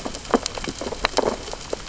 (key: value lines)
label: biophony, sea urchins (Echinidae)
recorder: SoundTrap 600 or HydroMoth